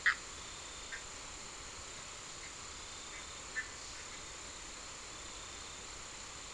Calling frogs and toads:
Bischoff's tree frog (Boana bischoffi)
2:00am

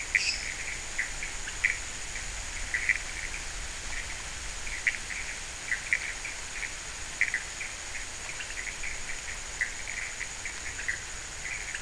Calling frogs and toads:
lesser tree frog (Dendropsophus minutus), pointedbelly frog (Leptodactylus podicipinus), Pithecopus azureus
4:15am

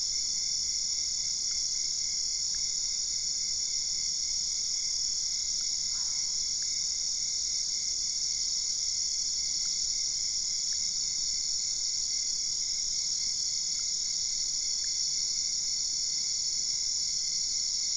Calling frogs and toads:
Boana albopunctata
10:30pm

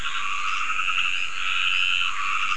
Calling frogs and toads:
Dendropsophus nahdereri, Scinax perereca
9:30pm

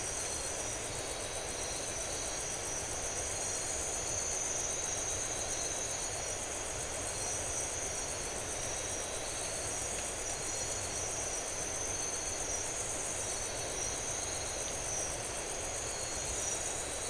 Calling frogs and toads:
none
1:00am

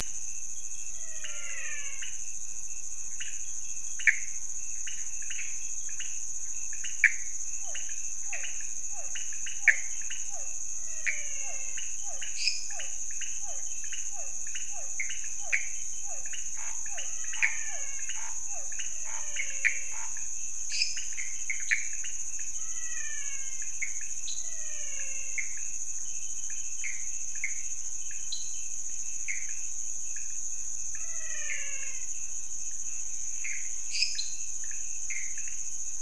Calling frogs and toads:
menwig frog (Physalaemus albonotatus), pointedbelly frog (Leptodactylus podicipinus), Pithecopus azureus, Physalaemus cuvieri, Scinax fuscovarius, lesser tree frog (Dendropsophus minutus), dwarf tree frog (Dendropsophus nanus)
12:15am

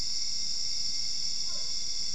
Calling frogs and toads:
Physalaemus cuvieri
1:15am

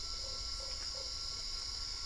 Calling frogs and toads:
Usina tree frog (Boana lundii)
8:00pm

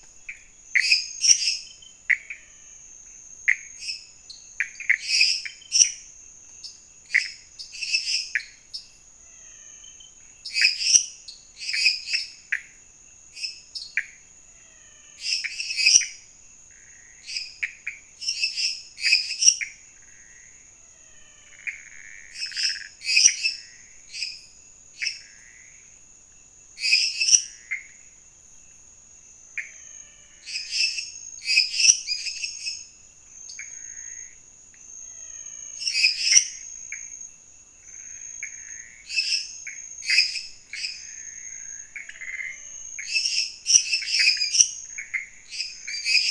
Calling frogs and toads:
Pithecopus azureus, lesser tree frog (Dendropsophus minutus), menwig frog (Physalaemus albonotatus), dwarf tree frog (Dendropsophus nanus)
11:30pm

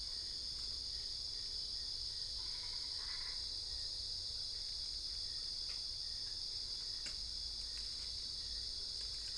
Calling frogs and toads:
Boana albopunctata
4:00am

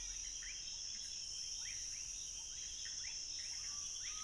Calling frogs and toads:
rufous frog (Leptodactylus fuscus), Pithecopus azureus
11:30pm

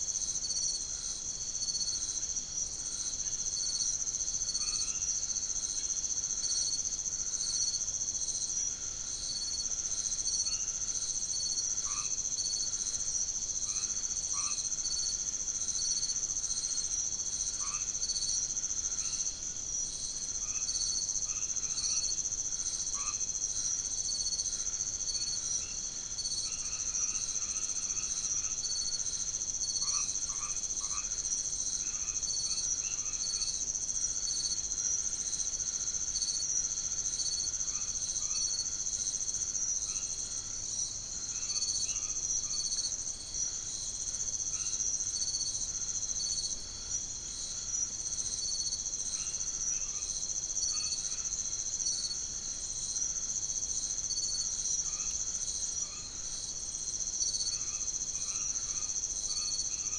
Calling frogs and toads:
white-edged tree frog (Boana albomarginata)
10:00pm

